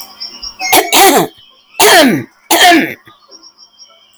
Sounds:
Throat clearing